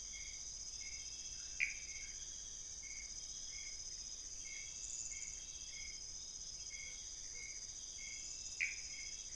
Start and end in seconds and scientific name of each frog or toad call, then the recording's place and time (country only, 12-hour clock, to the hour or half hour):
1.5	1.9	Pithecopus azureus
8.4	9.1	Pithecopus azureus
Brazil, ~2am